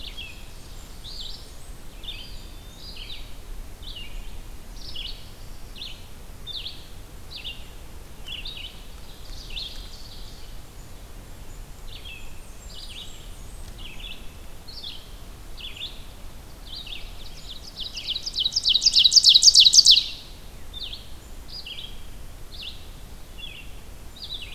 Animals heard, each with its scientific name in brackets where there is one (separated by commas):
Blackburnian Warbler (Setophaga fusca), Ovenbird (Seiurus aurocapilla), Eastern Wood-Pewee (Contopus virens), Black-throated Blue Warbler (Setophaga caerulescens), Red-eyed Vireo (Vireo olivaceus)